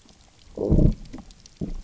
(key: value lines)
label: biophony, low growl
recorder: SoundTrap 300